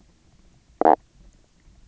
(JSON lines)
{"label": "biophony, knock croak", "recorder": "SoundTrap 300"}